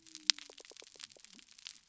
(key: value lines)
label: biophony
recorder: SoundTrap 300